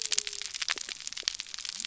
{"label": "biophony", "recorder": "SoundTrap 300"}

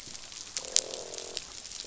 {"label": "biophony, croak", "recorder": "SoundTrap 500"}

